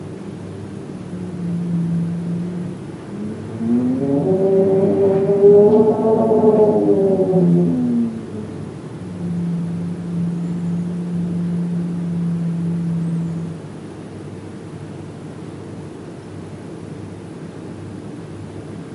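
0.5s A distant gust of wind gradually increases. 13.2s

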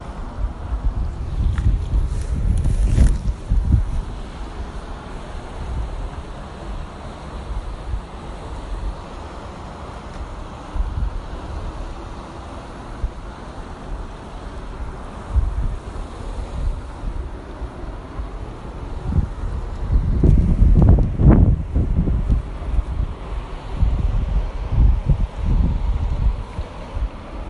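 0.0s Water streaming nearby with muffled and noisy background. 27.5s
0.1s Wind blowing, muffled. 4.1s
3.4s Clothes rustling. 4.2s
19.8s Wind blowing outdoors. 26.5s

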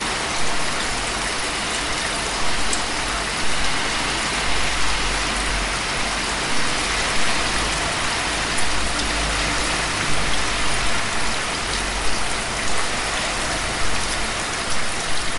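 0.0s Rain pouring steadily, creating a pitter-patter sound. 15.4s
0.0s Traffic repeatedly driving by creates a muffled whooshing sound. 15.4s

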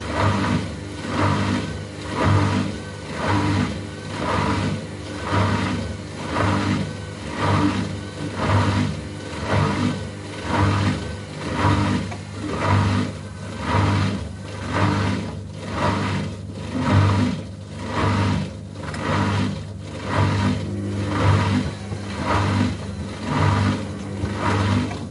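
0.0s A washing machine pump operates periodically. 25.1s

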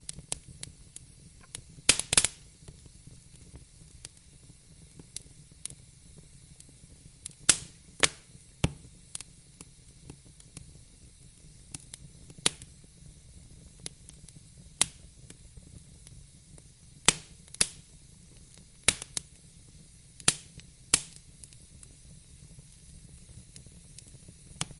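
0.1s Crackling sounds of a fire starting and gradually growing larger as the wood begins to burn. 24.8s

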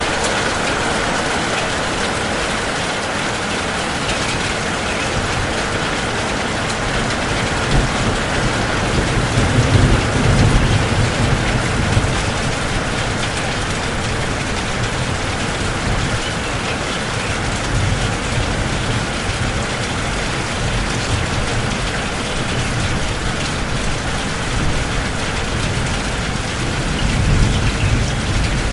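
0.0s Rain pouring continuously onto a hard surface during a storm. 28.7s
4.0s Birds chirping quietly in the background during a rainstorm. 6.9s
7.6s Thunder growls loudly during a rainstorm and then slowly fades out. 28.7s
15.5s Birds chirp quietly in the background during a rainstorm. 19.5s
24.9s Birds chirp quietly in the background during a rainstorm. 28.7s

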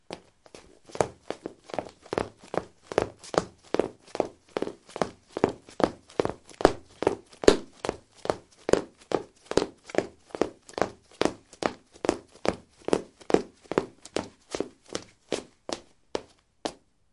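0.1s The sharp, rhythmic click-clack of high heels echoes with each step as someone steadily walks or runs. 17.0s

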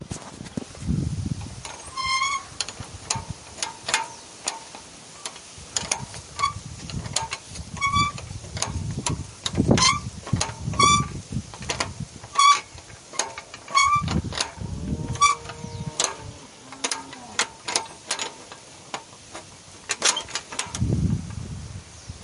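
0.0s Footsteps on grass. 1.6s
0.0s Wind blowing in the distance. 1.6s
1.6s A metal gate is opening. 3.0s
3.1s Wind blowing in the background. 14.6s
3.1s A metal gate is screeching. 22.2s
14.6s A cow is mooing nearby. 17.8s

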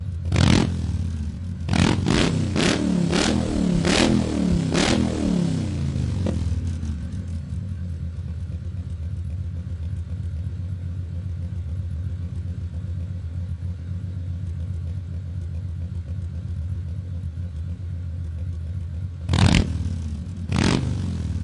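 0.1s An engine is revving nearby. 0.8s
1.6s An engine is revving nearby. 5.1s
19.1s An engine is revving nearby. 19.7s
20.3s An engine is revving nearby. 21.0s

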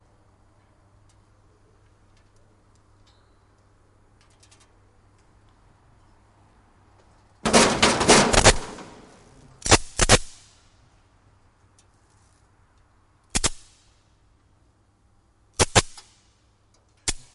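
7.4s A Jacob's ladder starting up. 8.3s
8.3s Two electric arcs crackle in quick succession. 8.7s
9.6s Three electric arcs occur in quick succession. 10.3s
13.3s Two electric arcs crackle in quick succession. 13.6s
15.6s Two electric arcs crackle in quick succession. 16.0s
17.0s An electric arc crackles. 17.2s

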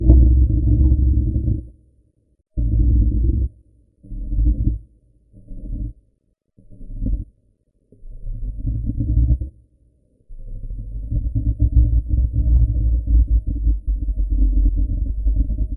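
0.0s An intense, artificial growl. 2.0s
2.4s An artificial growl fading away. 6.1s
10.2s Repeated muffled artificial growling sounds. 15.8s

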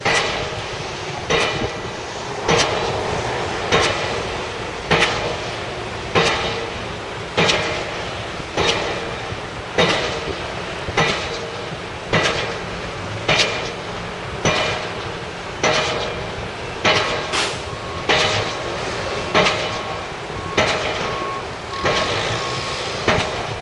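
0.0s A hammer bangs on a metallic surface in a steady pattern. 23.6s
18.3s A vehicle beeps in a steady pattern in the distance. 23.6s
21.7s A motor starts and then gradually decreases in volume. 23.6s

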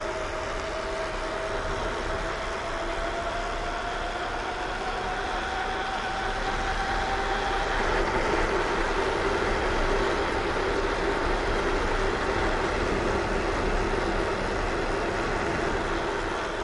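0.0s A bike wheel runs loudly on the ground, gradually increasing in volume. 16.6s

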